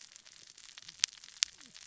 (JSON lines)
{"label": "biophony, cascading saw", "recorder": "SoundTrap 600 or HydroMoth"}